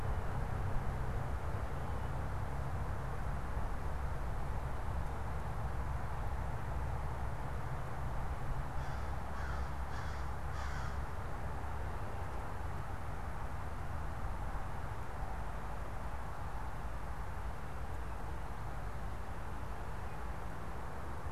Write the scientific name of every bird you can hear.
Corvus brachyrhynchos